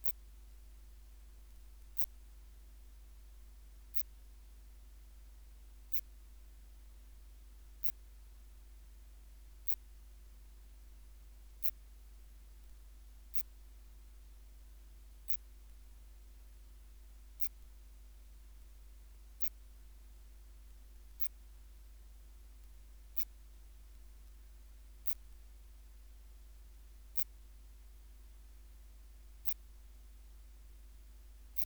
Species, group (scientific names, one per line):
Phaneroptera falcata
Orthoptera